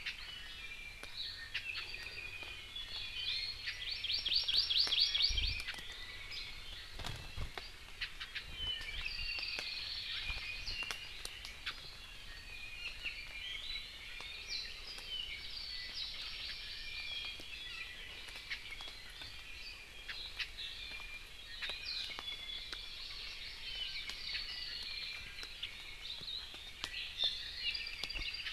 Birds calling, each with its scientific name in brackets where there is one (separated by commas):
Hawaii Amakihi (Chlorodrepanis virens), Apapane (Himatione sanguinea), Iiwi (Drepanis coccinea)